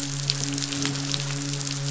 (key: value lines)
label: biophony, midshipman
recorder: SoundTrap 500